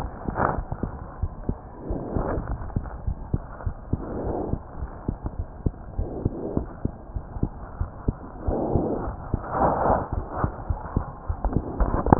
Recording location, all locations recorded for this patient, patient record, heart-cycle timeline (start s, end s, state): pulmonary valve (PV)
aortic valve (AV)+pulmonary valve (PV)+tricuspid valve (TV)+mitral valve (MV)
#Age: Child
#Sex: Male
#Height: 95.0 cm
#Weight: 14.4 kg
#Pregnancy status: False
#Murmur: Absent
#Murmur locations: nan
#Most audible location: nan
#Systolic murmur timing: nan
#Systolic murmur shape: nan
#Systolic murmur grading: nan
#Systolic murmur pitch: nan
#Systolic murmur quality: nan
#Diastolic murmur timing: nan
#Diastolic murmur shape: nan
#Diastolic murmur grading: nan
#Diastolic murmur pitch: nan
#Diastolic murmur quality: nan
#Outcome: Normal
#Campaign: 2015 screening campaign
0.00	1.19	unannotated
1.19	1.32	S1
1.32	1.46	systole
1.46	1.56	S2
1.56	1.86	diastole
1.86	2.02	S1
2.02	2.13	systole
2.13	2.26	S2
2.26	2.48	diastole
2.48	2.60	S1
2.60	2.73	systole
2.73	2.82	S2
2.82	3.04	diastole
3.04	3.18	S1
3.18	3.31	systole
3.31	3.40	S2
3.40	3.63	diastole
3.63	3.74	S1
3.74	3.90	systole
3.90	4.02	S2
4.02	4.24	diastole
4.24	4.38	S1
4.38	4.50	systole
4.50	4.60	S2
4.60	4.78	diastole
4.78	4.90	S1
4.90	5.05	systole
5.05	5.16	S2
5.16	5.35	diastole
5.35	5.44	S1
5.44	5.61	diastole
5.61	5.72	S2
5.72	5.95	diastole
5.95	6.08	S1
6.08	6.21	systole
6.21	6.32	S2
6.32	6.55	diastole
6.55	6.68	S1
6.68	6.82	systole
6.82	6.94	S2
6.94	7.13	diastole
7.13	7.24	S1
7.24	7.39	systole
7.39	7.50	S2
7.50	7.78	diastole
7.78	7.90	S1
7.90	8.03	systole
8.03	8.16	S2
8.16	8.42	diastole
8.42	8.58	S1
8.58	12.19	unannotated